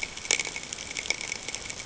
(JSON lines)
{"label": "ambient", "recorder": "HydroMoth"}